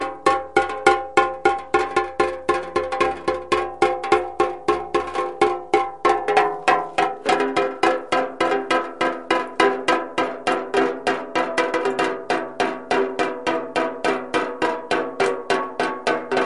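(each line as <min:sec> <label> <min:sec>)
0:00.0 Water drips slowly onto a tin can repeatedly. 0:16.5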